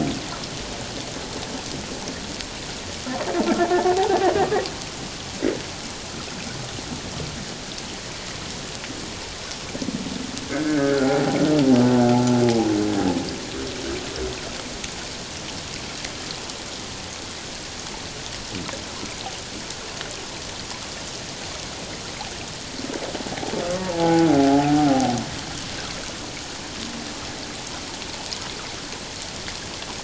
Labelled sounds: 4.0	4.3	humpback whale, 0.78 to 0.94 kHz
10.6	11.4	humpback whale, 0.78 to 1.7 kHz
12.1	12.4	humpback whale, 0.78 to 0.91 kHz
23.8	24.9	humpback whale, 0.78 to 0.97 kHz

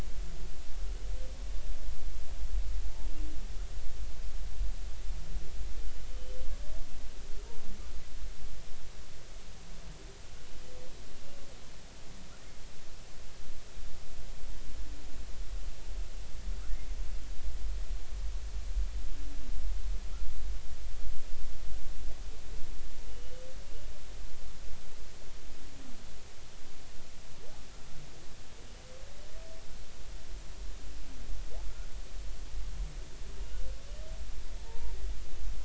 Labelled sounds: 23.1	23.4	humpback whale, 2.8 to 3.1 kHz
34.6	35.0	humpback whale, 0.86 to 0.99 kHz

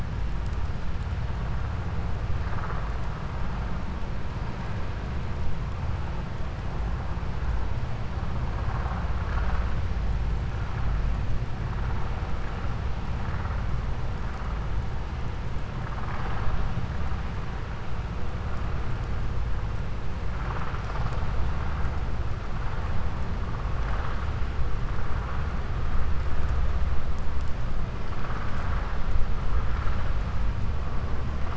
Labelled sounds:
9.2	9.6	vessel noise, 0.59 to 2.3 kHz

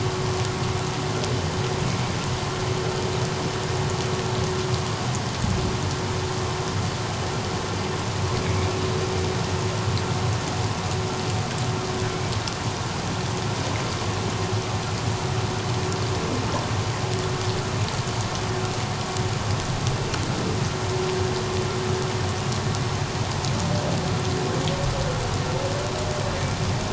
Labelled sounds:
1.9	2.1	humpback whale, 2.2 to 2.3 kHz

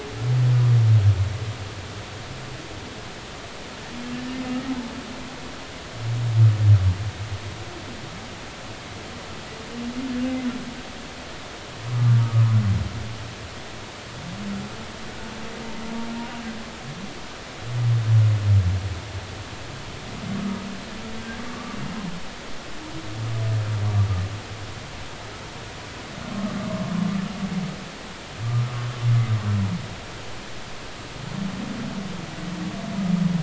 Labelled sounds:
12.1	12.5	humpback whale, 1.1 to 1.3 kHz
20.4	20.6	humpback whale, 1.2 to 1.3 kHz
21.5	21.8	humpback whale, 1.1 to 1.3 kHz

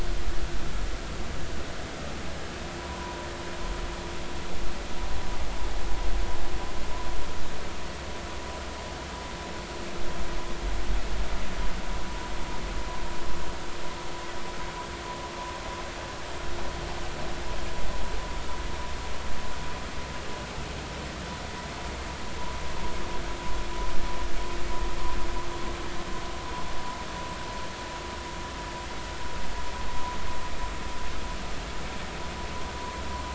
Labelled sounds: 2.8	3.3	vessel noise, 0.90 to 1.1 kHz

